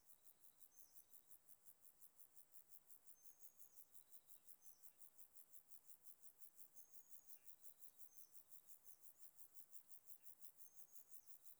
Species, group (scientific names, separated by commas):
Chorthippus vagans, Orthoptera